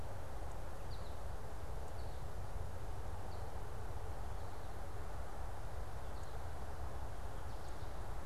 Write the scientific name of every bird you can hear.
Spinus tristis